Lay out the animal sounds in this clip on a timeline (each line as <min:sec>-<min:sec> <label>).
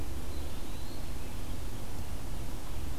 0:00.1-0:01.2 Eastern Wood-Pewee (Contopus virens)